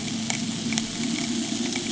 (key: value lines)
label: anthrophony, boat engine
recorder: HydroMoth